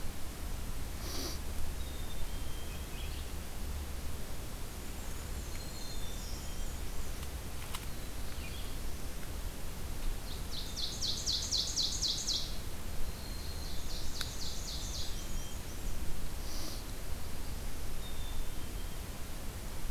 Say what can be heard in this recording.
Black-capped Chickadee, Red-eyed Vireo, Black-and-white Warbler, Black-throated Green Warbler, Black-throated Blue Warbler, Ovenbird